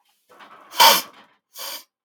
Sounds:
Sniff